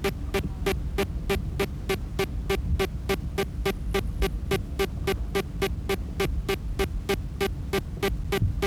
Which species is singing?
Kikihia muta